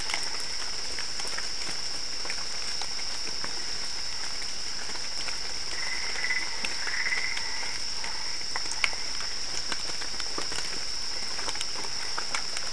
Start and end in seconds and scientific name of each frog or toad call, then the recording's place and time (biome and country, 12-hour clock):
5.5	7.7	Boana albopunctata
Cerrado, Brazil, 2:30am